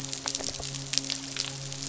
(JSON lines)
{"label": "biophony, midshipman", "recorder": "SoundTrap 500"}